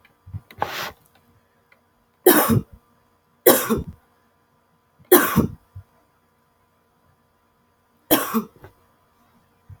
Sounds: Cough